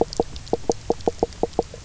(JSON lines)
{"label": "biophony, knock croak", "recorder": "SoundTrap 300"}